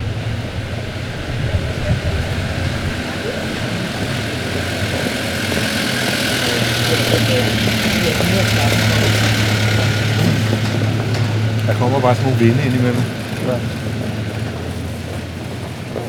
Can a man be heard speaking?
yes